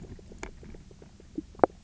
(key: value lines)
label: biophony
recorder: SoundTrap 300